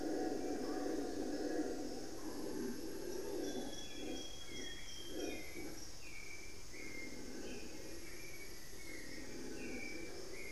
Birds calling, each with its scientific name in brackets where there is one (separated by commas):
Amazonian Grosbeak (Cyanoloxia rothschildii), Black-faced Antthrush (Formicarius analis), unidentified bird, Hauxwell's Thrush (Turdus hauxwelli)